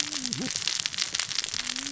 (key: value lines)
label: biophony, cascading saw
recorder: SoundTrap 600 or HydroMoth